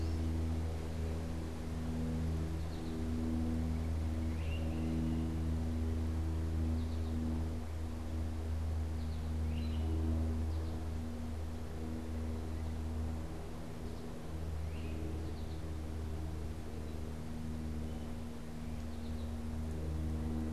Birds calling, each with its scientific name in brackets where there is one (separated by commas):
American Goldfinch (Spinus tristis), Great Crested Flycatcher (Myiarchus crinitus)